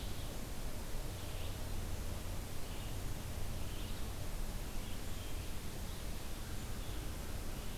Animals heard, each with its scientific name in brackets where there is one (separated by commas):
Red-eyed Vireo (Vireo olivaceus)